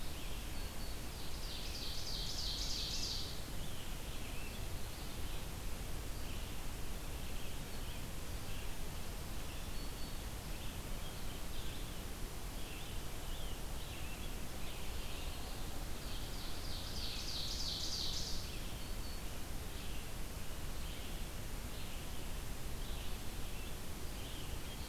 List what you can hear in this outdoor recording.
Red-eyed Vireo, Black-throated Green Warbler, Ovenbird